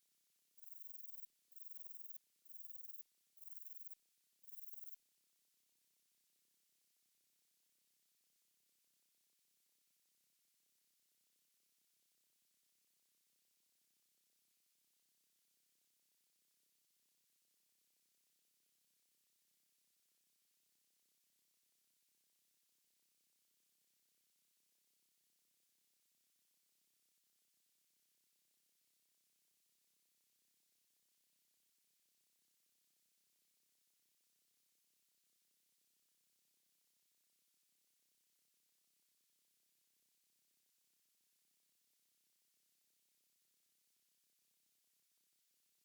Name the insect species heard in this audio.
Rhacocleis lithoscirtetes